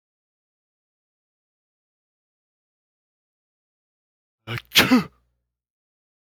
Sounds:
Sneeze